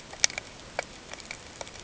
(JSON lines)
{"label": "ambient", "recorder": "HydroMoth"}